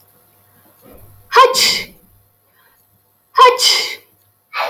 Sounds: Sneeze